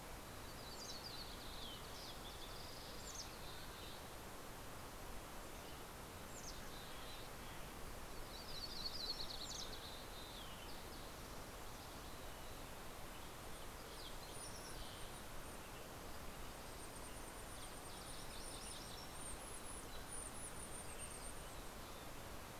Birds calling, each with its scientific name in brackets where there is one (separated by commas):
Mountain Chickadee (Poecile gambeli), Green-tailed Towhee (Pipilo chlorurus), MacGillivray's Warbler (Geothlypis tolmiei), Steller's Jay (Cyanocitta stelleri), Yellow-rumped Warbler (Setophaga coronata), Mountain Quail (Oreortyx pictus)